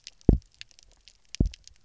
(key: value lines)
label: biophony, double pulse
recorder: SoundTrap 300